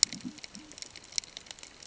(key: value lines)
label: ambient
recorder: HydroMoth